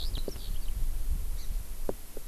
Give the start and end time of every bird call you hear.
[0.00, 0.80] Eurasian Skylark (Alauda arvensis)
[1.40, 1.50] Hawaii Amakihi (Chlorodrepanis virens)

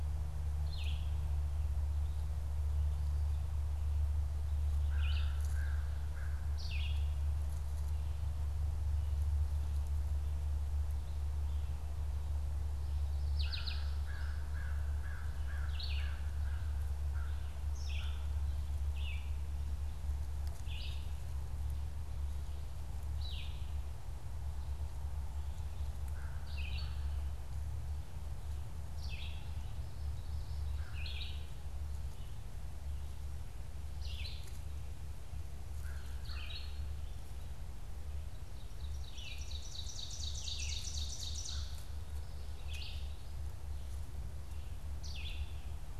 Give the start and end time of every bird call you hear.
[0.00, 23.95] Red-eyed Vireo (Vireo olivaceus)
[4.65, 6.55] American Crow (Corvus brachyrhynchos)
[13.35, 18.35] American Crow (Corvus brachyrhynchos)
[26.25, 45.95] Red-eyed Vireo (Vireo olivaceus)
[37.95, 42.25] Ovenbird (Seiurus aurocapilla)

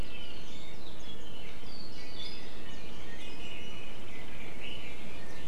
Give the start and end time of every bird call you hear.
[1.97, 4.07] Iiwi (Drepanis coccinea)
[4.07, 5.46] Red-billed Leiothrix (Leiothrix lutea)

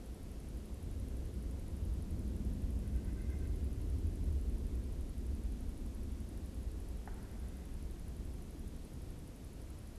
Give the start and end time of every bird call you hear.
[2.84, 3.54] White-breasted Nuthatch (Sitta carolinensis)

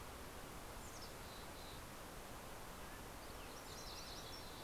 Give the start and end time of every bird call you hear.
[0.40, 2.10] Mountain Chickadee (Poecile gambeli)
[2.30, 3.20] Mountain Quail (Oreortyx pictus)
[3.00, 4.63] MacGillivray's Warbler (Geothlypis tolmiei)
[3.40, 4.63] Mountain Chickadee (Poecile gambeli)

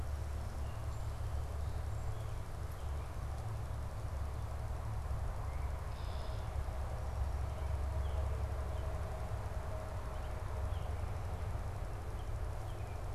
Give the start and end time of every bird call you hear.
[0.47, 2.37] Song Sparrow (Melospiza melodia)
[5.77, 6.57] Red-winged Blackbird (Agelaius phoeniceus)
[7.47, 13.07] American Robin (Turdus migratorius)

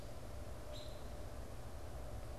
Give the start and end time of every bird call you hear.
[0.50, 1.20] American Robin (Turdus migratorius)

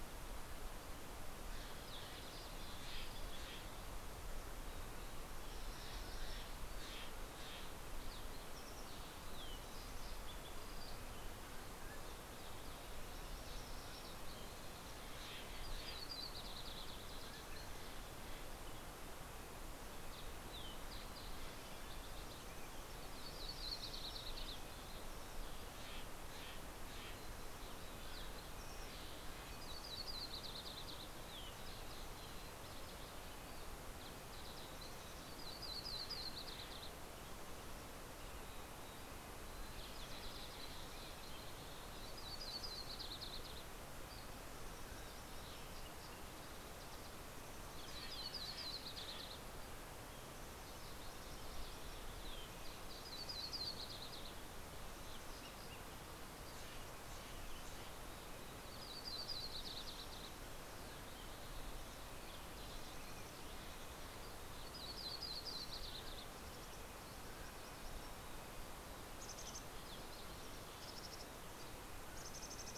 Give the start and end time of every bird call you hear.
[1.38, 8.08] Steller's Jay (Cyanocitta stelleri)
[7.88, 14.78] Green-tailed Towhee (Pipilo chlorurus)
[9.98, 12.88] Mountain Quail (Oreortyx pictus)
[14.58, 17.18] Steller's Jay (Cyanocitta stelleri)
[14.78, 18.68] Yellow-rumped Warbler (Setophaga coronata)
[18.88, 30.08] Red-breasted Nuthatch (Sitta canadensis)
[19.28, 22.78] Green-tailed Towhee (Pipilo chlorurus)
[21.88, 25.68] Yellow-rumped Warbler (Setophaga coronata)
[25.08, 29.78] Steller's Jay (Cyanocitta stelleri)
[26.08, 29.78] Green-tailed Towhee (Pipilo chlorurus)
[28.68, 32.28] Yellow-rumped Warbler (Setophaga coronata)
[30.88, 35.58] Green-tailed Towhee (Pipilo chlorurus)
[32.88, 41.08] Red-breasted Nuthatch (Sitta canadensis)
[34.48, 38.58] Yellow-rumped Warbler (Setophaga coronata)
[37.98, 41.98] Green-tailed Towhee (Pipilo chlorurus)
[41.18, 45.28] Yellow-rumped Warbler (Setophaga coronata)
[46.88, 50.78] Yellow-rumped Warbler (Setophaga coronata)
[46.88, 55.58] Red-breasted Nuthatch (Sitta canadensis)
[47.38, 50.18] Steller's Jay (Cyanocitta stelleri)
[52.38, 54.98] Yellow-rumped Warbler (Setophaga coronata)
[55.68, 58.58] Steller's Jay (Cyanocitta stelleri)
[56.48, 72.78] Red-breasted Nuthatch (Sitta canadensis)
[57.98, 60.88] Yellow-rumped Warbler (Setophaga coronata)
[60.68, 64.38] Green-tailed Towhee (Pipilo chlorurus)
[64.18, 66.88] Yellow-rumped Warbler (Setophaga coronata)
[65.18, 67.88] Mountain Quail (Oreortyx pictus)
[68.88, 72.78] Mountain Chickadee (Poecile gambeli)
[70.88, 72.78] Mountain Quail (Oreortyx pictus)

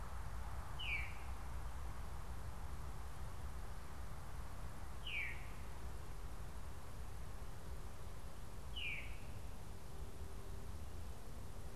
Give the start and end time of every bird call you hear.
[0.00, 9.52] Veery (Catharus fuscescens)

